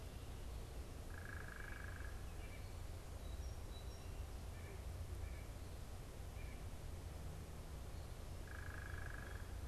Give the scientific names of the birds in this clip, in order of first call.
unidentified bird, Sitta carolinensis, Melospiza melodia